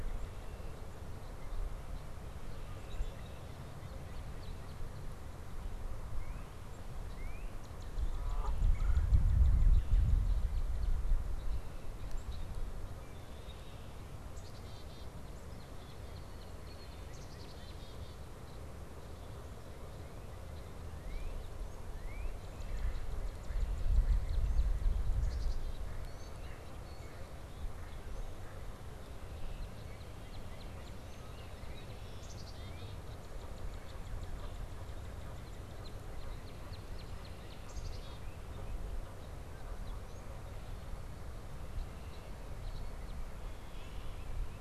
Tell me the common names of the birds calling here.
Red-winged Blackbird, Northern Cardinal, Canada Goose, Red-bellied Woodpecker, Black-capped Chickadee, Mallard, Blue Jay